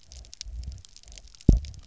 {"label": "biophony, double pulse", "recorder": "SoundTrap 300"}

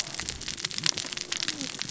{"label": "biophony, cascading saw", "recorder": "SoundTrap 600 or HydroMoth"}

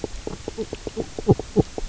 {"label": "biophony, knock croak", "recorder": "SoundTrap 300"}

